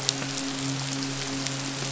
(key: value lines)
label: biophony, midshipman
recorder: SoundTrap 500